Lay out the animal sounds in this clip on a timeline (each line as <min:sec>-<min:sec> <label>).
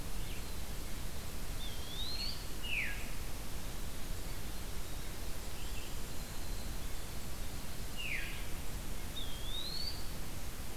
0:01.5-0:02.5 Eastern Wood-Pewee (Contopus virens)
0:02.5-0:03.0 Veery (Catharus fuscescens)
0:07.9-0:08.5 Veery (Catharus fuscescens)
0:08.9-0:10.3 Eastern Wood-Pewee (Contopus virens)